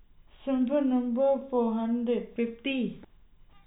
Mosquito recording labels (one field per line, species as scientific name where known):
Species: no mosquito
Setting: cup